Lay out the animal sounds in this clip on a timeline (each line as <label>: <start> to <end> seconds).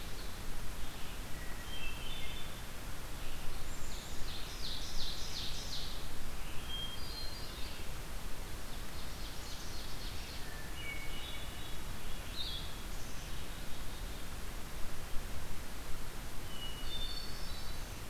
Red-eyed Vireo (Vireo olivaceus): 0.0 to 6.9 seconds
Hermit Thrush (Catharus guttatus): 1.2 to 2.5 seconds
Blackburnian Warbler (Setophaga fusca): 3.5 to 4.2 seconds
Ovenbird (Seiurus aurocapilla): 3.7 to 6.1 seconds
Hermit Thrush (Catharus guttatus): 6.6 to 7.8 seconds
Ovenbird (Seiurus aurocapilla): 8.3 to 10.6 seconds
Black-capped Chickadee (Poecile atricapillus): 9.4 to 10.0 seconds
Hermit Thrush (Catharus guttatus): 10.1 to 12.0 seconds
Blue-headed Vireo (Vireo solitarius): 12.2 to 12.8 seconds
Black-capped Chickadee (Poecile atricapillus): 12.8 to 14.4 seconds
Hermit Thrush (Catharus guttatus): 16.1 to 18.1 seconds